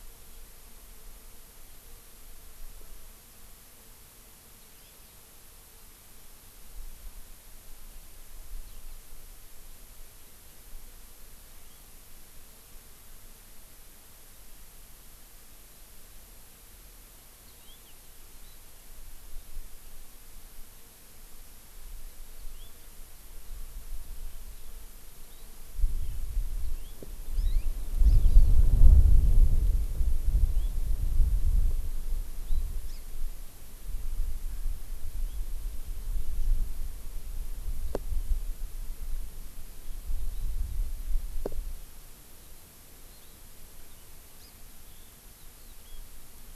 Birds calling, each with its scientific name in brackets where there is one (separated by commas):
Hawaii Amakihi (Chlorodrepanis virens), Eurasian Skylark (Alauda arvensis)